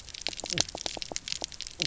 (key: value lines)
label: biophony, knock croak
recorder: SoundTrap 300